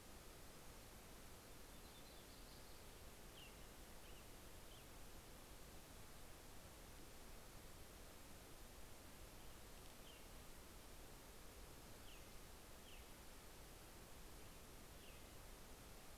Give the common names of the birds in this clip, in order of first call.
Yellow-rumped Warbler, American Robin